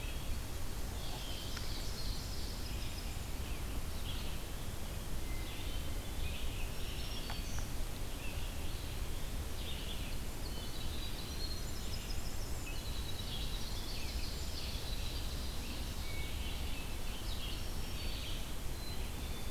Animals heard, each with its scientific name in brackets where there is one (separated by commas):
Red-eyed Vireo (Vireo olivaceus), Ovenbird (Seiurus aurocapilla), Hermit Thrush (Catharus guttatus), Black-capped Chickadee (Poecile atricapillus), Black-throated Green Warbler (Setophaga virens), Winter Wren (Troglodytes hiemalis)